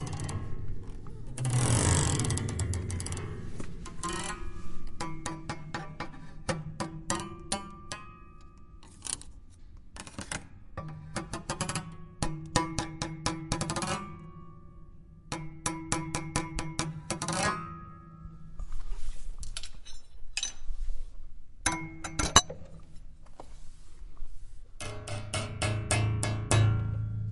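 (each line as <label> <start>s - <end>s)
A hand running along the strings of a musical instrument in a low register. 0.0s - 4.5s
The same string on a musical instrument is played repeatedly. 4.6s - 8.0s
Rubbing sound on a hard surface. 9.0s - 9.3s
Rubbing sound on a hard surface. 9.9s - 10.5s
The same string on a musical instrument is played repeatedly. 10.7s - 11.6s
The sound of a hand swiftly running along the strings of a musical instrument. 11.6s - 11.9s
The same string on a musical instrument is played repeatedly. 12.2s - 13.5s
The sound of a hand swiftly running along the strings of a musical instrument. 13.5s - 14.1s
The same string on a musical instrument is played repeatedly. 15.2s - 17.1s
The sound of a hand swiftly running along the strings of a musical instrument. 17.1s - 17.7s
A hand moves over a wooden surface. 18.5s - 20.1s
Light objects hit metal. 20.3s - 21.1s
The same string on a musical instrument is played repeatedly. 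21.6s - 22.1s
Light objects hit metal. 22.2s - 22.6s
A single low-pitched string on a musical instrument is played loudly and repeatedly. 24.7s - 27.3s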